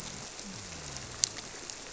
{"label": "biophony", "recorder": "SoundTrap 300"}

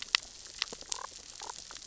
{"label": "biophony, damselfish", "recorder": "SoundTrap 600 or HydroMoth"}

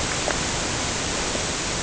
{"label": "ambient", "recorder": "HydroMoth"}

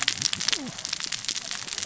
{"label": "biophony, cascading saw", "recorder": "SoundTrap 600 or HydroMoth"}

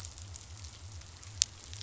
{"label": "biophony", "recorder": "SoundTrap 500"}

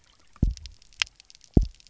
{"label": "biophony, double pulse", "recorder": "SoundTrap 300"}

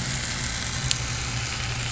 {"label": "anthrophony, boat engine", "recorder": "SoundTrap 500"}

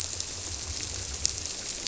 {"label": "biophony", "recorder": "SoundTrap 300"}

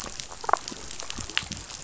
{"label": "biophony, damselfish", "recorder": "SoundTrap 500"}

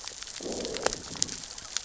{"label": "biophony, growl", "recorder": "SoundTrap 600 or HydroMoth"}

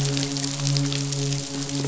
{"label": "biophony, midshipman", "recorder": "SoundTrap 500"}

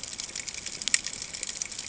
{"label": "ambient", "recorder": "HydroMoth"}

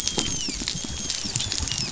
{"label": "biophony, dolphin", "recorder": "SoundTrap 500"}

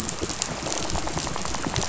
{"label": "biophony, rattle", "recorder": "SoundTrap 500"}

